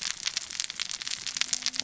{"label": "biophony, cascading saw", "recorder": "SoundTrap 600 or HydroMoth"}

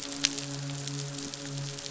{"label": "biophony, midshipman", "recorder": "SoundTrap 500"}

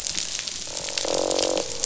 {"label": "biophony, croak", "recorder": "SoundTrap 500"}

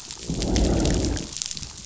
{"label": "biophony, growl", "recorder": "SoundTrap 500"}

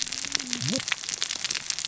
{"label": "biophony, cascading saw", "recorder": "SoundTrap 600 or HydroMoth"}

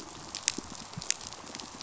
{"label": "biophony, pulse", "recorder": "SoundTrap 500"}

